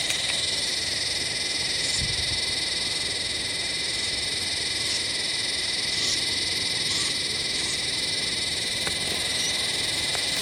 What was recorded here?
Psaltoda harrisii, a cicada